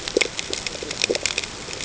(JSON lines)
{"label": "ambient", "recorder": "HydroMoth"}